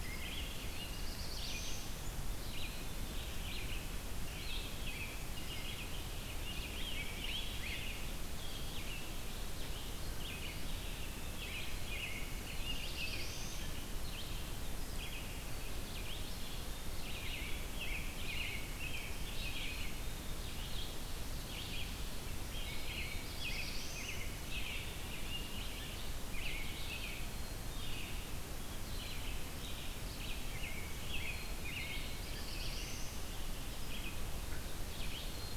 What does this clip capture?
American Robin, Red-eyed Vireo, Black-throated Blue Warbler, Rose-breasted Grosbeak, Black-capped Chickadee